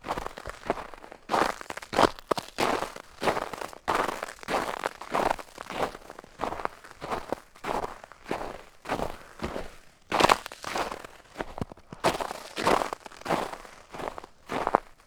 What's the person doing?
walking